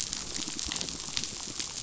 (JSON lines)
{"label": "biophony, damselfish", "recorder": "SoundTrap 500"}
{"label": "biophony", "recorder": "SoundTrap 500"}